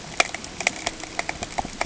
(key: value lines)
label: ambient
recorder: HydroMoth